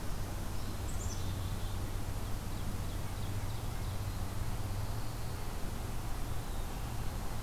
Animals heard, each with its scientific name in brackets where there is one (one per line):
Black-capped Chickadee (Poecile atricapillus)
Ovenbird (Seiurus aurocapilla)